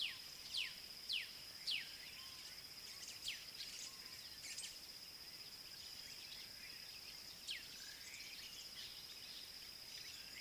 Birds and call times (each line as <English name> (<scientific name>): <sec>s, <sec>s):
Black-backed Puffback (Dryoscopus cubla): 1.2s